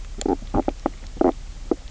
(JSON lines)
{"label": "biophony, knock croak", "recorder": "SoundTrap 300"}